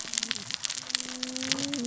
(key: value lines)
label: biophony, cascading saw
recorder: SoundTrap 600 or HydroMoth